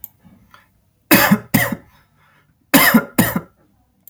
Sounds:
Cough